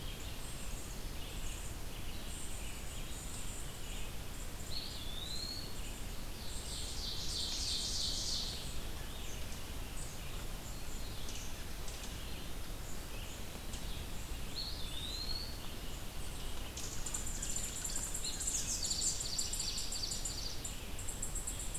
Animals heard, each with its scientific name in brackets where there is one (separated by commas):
Red-eyed Vireo (Vireo olivaceus), Eastern Wood-Pewee (Contopus virens), Ovenbird (Seiurus aurocapilla), unidentified call